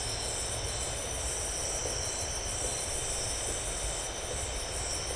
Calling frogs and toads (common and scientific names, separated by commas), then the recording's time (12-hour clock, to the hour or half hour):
none
11pm